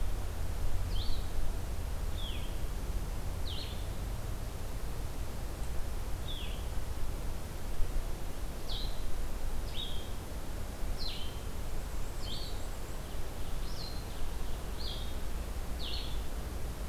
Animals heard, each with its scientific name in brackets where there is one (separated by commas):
Ovenbird (Seiurus aurocapilla), Black-and-white Warbler (Mniotilta varia), Blue-headed Vireo (Vireo solitarius)